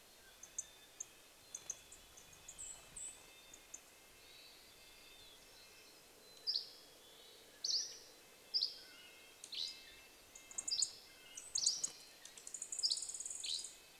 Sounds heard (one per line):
bird wingbeats
Red-breasted Nuthatch song
Mountain Quail call
Dark-eyed Junco call
Dusky Flycatcher song
Mountain Chickadee song
Hermit Thrush call
unidentified sound